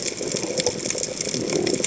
{"label": "biophony", "recorder": "HydroMoth"}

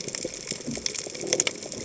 {"label": "biophony", "recorder": "HydroMoth"}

